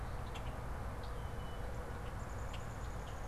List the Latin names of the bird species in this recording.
Agelaius phoeniceus, Dryobates pubescens